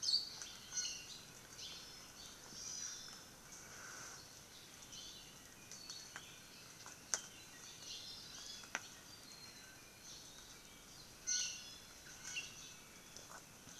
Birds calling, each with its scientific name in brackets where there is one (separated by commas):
Hawaii Akepa (Loxops coccineus), Hawaii Amakihi (Chlorodrepanis virens), Iiwi (Drepanis coccinea)